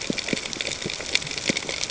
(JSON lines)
{"label": "ambient", "recorder": "HydroMoth"}